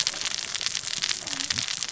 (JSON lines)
{"label": "biophony, cascading saw", "recorder": "SoundTrap 600 or HydroMoth"}